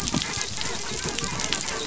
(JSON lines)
{"label": "biophony, dolphin", "recorder": "SoundTrap 500"}